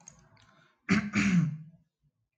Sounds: Throat clearing